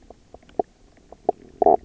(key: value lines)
label: biophony, knock croak
recorder: SoundTrap 300